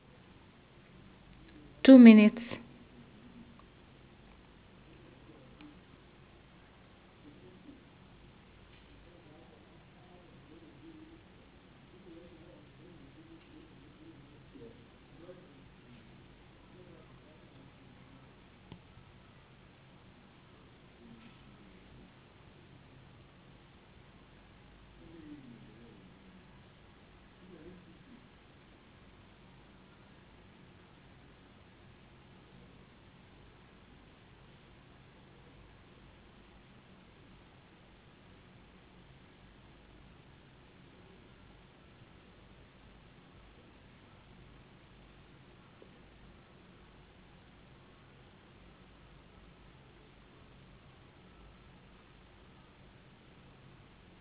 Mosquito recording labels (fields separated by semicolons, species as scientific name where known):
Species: no mosquito; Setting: insect culture